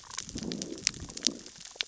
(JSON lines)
{"label": "biophony, growl", "recorder": "SoundTrap 600 or HydroMoth"}